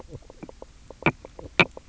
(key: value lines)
label: biophony, knock croak
recorder: SoundTrap 300